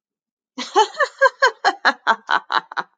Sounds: Laughter